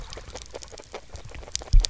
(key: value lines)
label: biophony, grazing
recorder: SoundTrap 300